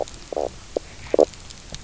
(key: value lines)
label: biophony, knock croak
recorder: SoundTrap 300